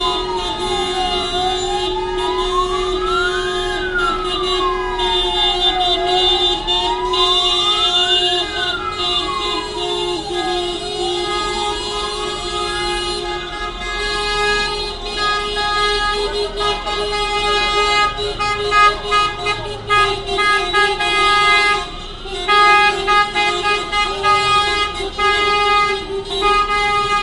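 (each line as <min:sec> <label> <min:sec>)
0:00.0 A police siren slowly fades out. 0:15.3
0:00.0 Several vehicles are honking repeatedly and irregularly at the same time. 0:27.2
0:00.0 Many vehicles driving slowly, as during rush hour. 0:27.2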